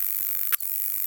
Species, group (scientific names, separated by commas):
Polysarcus denticauda, Orthoptera